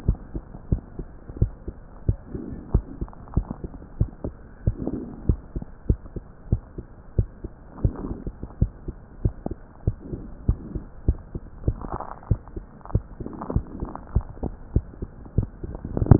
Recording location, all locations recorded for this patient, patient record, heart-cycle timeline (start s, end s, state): mitral valve (MV)
aortic valve (AV)+pulmonary valve (PV)+tricuspid valve (TV)+mitral valve (MV)
#Age: Child
#Sex: Male
#Height: 136.0 cm
#Weight: 26.1 kg
#Pregnancy status: False
#Murmur: Absent
#Murmur locations: nan
#Most audible location: nan
#Systolic murmur timing: nan
#Systolic murmur shape: nan
#Systolic murmur grading: nan
#Systolic murmur pitch: nan
#Systolic murmur quality: nan
#Diastolic murmur timing: nan
#Diastolic murmur shape: nan
#Diastolic murmur grading: nan
#Diastolic murmur pitch: nan
#Diastolic murmur quality: nan
#Outcome: Abnormal
#Campaign: 2015 screening campaign
0.00	0.06	unannotated
0.06	0.20	S1
0.20	0.32	systole
0.32	0.42	S2
0.42	0.70	diastole
0.70	0.82	S1
0.82	0.95	systole
0.95	1.06	S2
1.06	1.36	diastole
1.36	1.54	S1
1.54	1.64	systole
1.64	1.74	S2
1.74	2.04	diastole
2.04	2.18	S1
2.18	2.30	systole
2.30	2.42	S2
2.42	2.70	diastole
2.70	2.86	S1
2.86	2.98	systole
2.98	3.10	S2
3.10	3.32	diastole
3.32	3.46	S1
3.46	3.60	systole
3.60	3.70	S2
3.70	3.96	diastole
3.96	4.10	S1
4.10	4.21	systole
4.21	4.34	S2
4.34	4.62	diastole
4.62	4.76	S1
4.76	4.88	systole
4.88	5.02	S2
5.02	5.24	diastole
5.24	5.40	S1
5.40	5.53	systole
5.53	5.66	S2
5.66	5.86	diastole
5.86	6.00	S1
6.00	6.13	systole
6.13	6.24	S2
6.24	6.48	diastole
6.48	6.62	S1
6.62	6.74	systole
6.74	6.84	S2
6.84	7.14	diastole
7.14	7.28	S1
7.28	7.41	systole
7.41	7.50	S2
7.50	7.80	diastole
7.80	7.96	S1
7.96	8.07	systole
8.07	8.18	S2
8.18	8.58	diastole
8.58	8.72	S1
8.72	8.86	systole
8.86	8.94	S2
8.94	9.22	diastole
9.22	9.36	S1
9.36	9.47	systole
9.47	9.58	S2
9.58	9.83	diastole
9.83	9.98	S1
9.98	10.08	systole
10.08	10.20	S2
10.20	10.46	diastole
10.46	10.60	S1
10.60	10.73	systole
10.73	10.84	S2
10.84	11.06	diastole
11.06	11.20	S1
11.20	11.31	systole
11.31	11.42	S2
11.42	11.64	diastole
11.64	11.80	S1
11.80	16.19	unannotated